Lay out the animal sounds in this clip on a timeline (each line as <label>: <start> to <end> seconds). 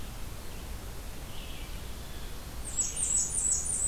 Red-eyed Vireo (Vireo olivaceus): 0.0 to 3.9 seconds
Blackburnian Warbler (Setophaga fusca): 2.5 to 3.9 seconds